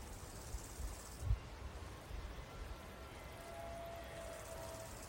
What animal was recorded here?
Chorthippus biguttulus, an orthopteran